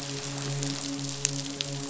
{"label": "biophony, midshipman", "recorder": "SoundTrap 500"}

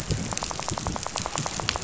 {"label": "biophony, rattle", "recorder": "SoundTrap 500"}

